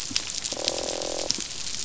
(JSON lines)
{"label": "biophony, croak", "recorder": "SoundTrap 500"}